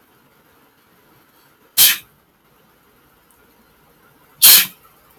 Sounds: Sneeze